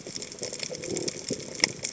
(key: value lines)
label: biophony
recorder: HydroMoth